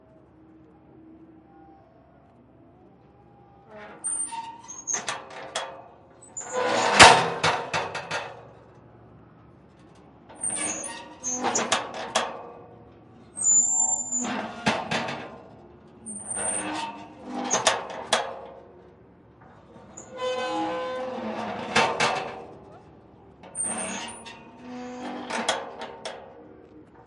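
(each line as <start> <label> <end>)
0.0 An iron door opens and closes. 27.1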